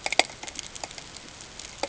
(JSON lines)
{"label": "ambient", "recorder": "HydroMoth"}